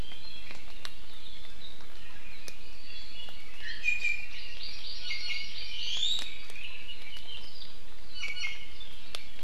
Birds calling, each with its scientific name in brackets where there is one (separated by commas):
Hawaii Amakihi (Chlorodrepanis virens), Red-billed Leiothrix (Leiothrix lutea), Iiwi (Drepanis coccinea)